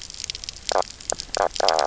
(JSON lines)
{"label": "biophony, knock croak", "recorder": "SoundTrap 300"}